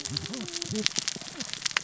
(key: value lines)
label: biophony, cascading saw
recorder: SoundTrap 600 or HydroMoth